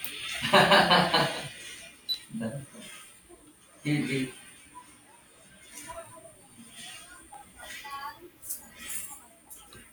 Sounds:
Cough